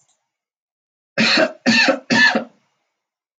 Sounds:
Cough